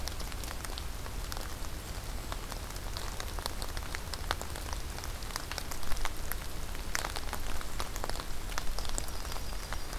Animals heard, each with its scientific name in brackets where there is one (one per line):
Yellow-rumped Warbler (Setophaga coronata)
Golden-crowned Kinglet (Regulus satrapa)